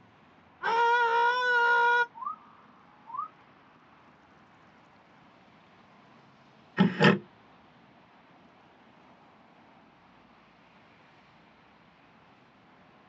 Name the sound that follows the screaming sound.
bird